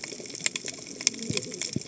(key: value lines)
label: biophony, cascading saw
recorder: HydroMoth